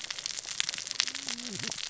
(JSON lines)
{"label": "biophony, cascading saw", "recorder": "SoundTrap 600 or HydroMoth"}